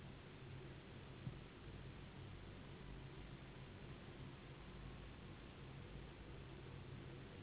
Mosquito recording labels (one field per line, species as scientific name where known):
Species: Anopheles gambiae s.s.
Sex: female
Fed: unfed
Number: one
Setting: insect culture